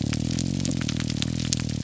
{"label": "biophony", "recorder": "SoundTrap 300"}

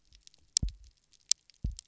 {"label": "biophony, double pulse", "recorder": "SoundTrap 300"}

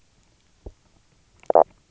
{"label": "biophony, knock croak", "recorder": "SoundTrap 300"}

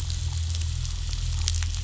{"label": "anthrophony, boat engine", "recorder": "SoundTrap 500"}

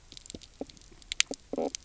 {"label": "biophony, knock croak", "recorder": "SoundTrap 300"}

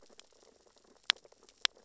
{"label": "biophony, sea urchins (Echinidae)", "recorder": "SoundTrap 600 or HydroMoth"}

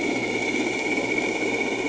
{"label": "anthrophony, boat engine", "recorder": "HydroMoth"}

